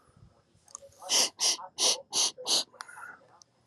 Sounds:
Sniff